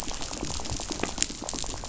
{"label": "biophony, rattle", "recorder": "SoundTrap 500"}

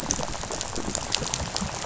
{"label": "biophony, rattle", "recorder": "SoundTrap 500"}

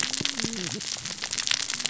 {"label": "biophony, cascading saw", "recorder": "SoundTrap 600 or HydroMoth"}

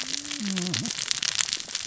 {"label": "biophony, cascading saw", "recorder": "SoundTrap 600 or HydroMoth"}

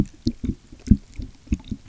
{"label": "geophony, waves", "recorder": "SoundTrap 300"}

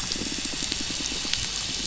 {"label": "anthrophony, boat engine", "recorder": "SoundTrap 500"}
{"label": "biophony, pulse", "recorder": "SoundTrap 500"}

